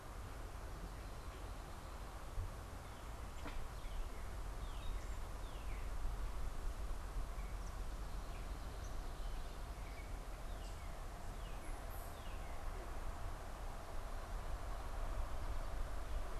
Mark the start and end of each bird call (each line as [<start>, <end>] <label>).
[3.30, 6.10] Northern Cardinal (Cardinalis cardinalis)
[10.10, 12.90] Northern Cardinal (Cardinalis cardinalis)